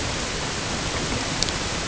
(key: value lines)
label: ambient
recorder: HydroMoth